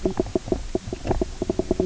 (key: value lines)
label: biophony, knock croak
recorder: SoundTrap 300